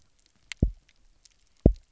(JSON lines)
{"label": "biophony, double pulse", "recorder": "SoundTrap 300"}